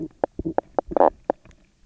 {"label": "biophony, knock croak", "recorder": "SoundTrap 300"}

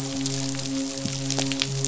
{"label": "biophony, midshipman", "recorder": "SoundTrap 500"}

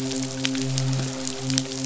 {"label": "biophony, midshipman", "recorder": "SoundTrap 500"}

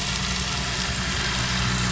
{"label": "anthrophony, boat engine", "recorder": "SoundTrap 500"}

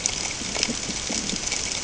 {"label": "ambient", "recorder": "HydroMoth"}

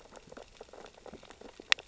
{"label": "biophony, sea urchins (Echinidae)", "recorder": "SoundTrap 600 or HydroMoth"}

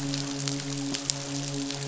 {"label": "biophony, midshipman", "recorder": "SoundTrap 500"}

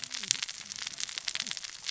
{"label": "biophony, cascading saw", "recorder": "SoundTrap 600 or HydroMoth"}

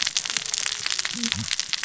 {"label": "biophony, cascading saw", "recorder": "SoundTrap 600 or HydroMoth"}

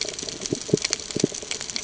{"label": "ambient", "recorder": "HydroMoth"}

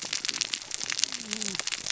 {"label": "biophony, cascading saw", "recorder": "SoundTrap 600 or HydroMoth"}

